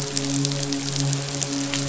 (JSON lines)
{"label": "biophony, midshipman", "recorder": "SoundTrap 500"}